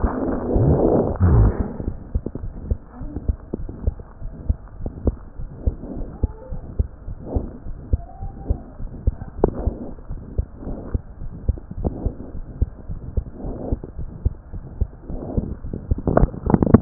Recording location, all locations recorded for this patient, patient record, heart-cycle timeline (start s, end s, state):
mitral valve (MV)
aortic valve (AV)+mitral valve (MV)
#Age: Child
#Sex: Male
#Height: 79.0 cm
#Weight: 9.5 kg
#Pregnancy status: False
#Murmur: Present
#Murmur locations: aortic valve (AV)+mitral valve (MV)
#Most audible location: aortic valve (AV)
#Systolic murmur timing: Mid-systolic
#Systolic murmur shape: Diamond
#Systolic murmur grading: I/VI
#Systolic murmur pitch: Medium
#Systolic murmur quality: Harsh
#Diastolic murmur timing: nan
#Diastolic murmur shape: nan
#Diastolic murmur grading: nan
#Diastolic murmur pitch: nan
#Diastolic murmur quality: nan
#Outcome: Abnormal
#Campaign: 2015 screening campaign
0.00	4.18	unannotated
4.18	4.34	S1
4.34	4.44	systole
4.44	4.58	S2
4.58	4.79	diastole
4.79	4.94	S1
4.94	5.02	systole
5.02	5.14	S2
5.14	5.37	diastole
5.37	5.50	S1
5.50	5.62	systole
5.62	5.76	S2
5.76	5.95	diastole
5.95	6.08	S1
6.08	6.16	systole
6.16	6.28	S2
6.28	6.47	diastole
6.47	6.62	S1
6.62	6.72	systole
6.72	6.84	S2
6.84	7.05	diastole
7.05	7.18	S1
7.18	7.32	systole
7.32	7.46	S2
7.46	7.64	diastole
7.64	7.78	S1
7.78	7.88	systole
7.88	8.02	S2
8.02	8.20	diastole
8.20	8.34	S1
8.34	8.46	systole
8.46	8.60	S2
8.60	8.77	diastole
8.77	8.92	S1
8.92	9.00	systole
9.00	9.14	S2
9.14	9.40	diastole
9.40	9.56	S1
9.56	9.64	systole
9.64	9.78	S2
9.78	10.07	diastole
10.07	10.22	S1
10.22	10.32	systole
10.32	10.44	S2
10.44	10.66	diastole
10.66	10.80	S1
10.80	10.90	systole
10.90	11.02	S2
11.02	11.19	diastole
11.19	11.34	S1
11.34	11.44	systole
11.44	11.58	S2
11.58	11.76	diastole
11.76	11.94	S1
11.94	12.00	systole
12.00	12.14	S2
12.14	12.33	diastole
12.33	12.46	S1
12.46	12.58	systole
12.58	12.72	S2
12.72	12.87	diastole
12.87	12.98	S1
12.98	13.14	systole
13.14	13.28	S2
13.28	13.42	diastole
13.42	13.60	S1
13.60	13.70	systole
13.70	13.80	S2
13.80	13.95	diastole
13.95	14.10	S1
14.10	14.22	systole
14.22	14.36	S2
14.36	16.82	unannotated